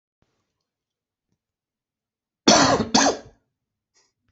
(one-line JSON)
{"expert_labels": [{"quality": "good", "cough_type": "dry", "dyspnea": false, "wheezing": false, "stridor": false, "choking": false, "congestion": false, "nothing": true, "diagnosis": "healthy cough", "severity": "pseudocough/healthy cough"}], "age": 31, "gender": "male", "respiratory_condition": false, "fever_muscle_pain": false, "status": "healthy"}